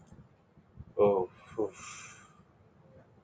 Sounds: Sigh